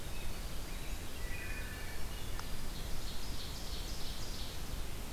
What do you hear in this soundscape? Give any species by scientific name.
Seiurus aurocapilla, Pheucticus ludovicianus, Hylocichla mustelina